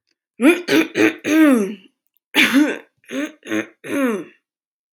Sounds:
Throat clearing